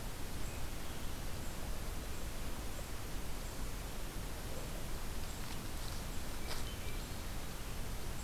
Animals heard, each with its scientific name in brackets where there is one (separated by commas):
Swainson's Thrush (Catharus ustulatus)